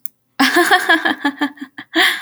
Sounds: Laughter